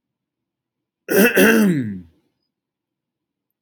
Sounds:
Throat clearing